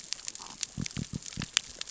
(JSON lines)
{"label": "biophony", "recorder": "SoundTrap 600 or HydroMoth"}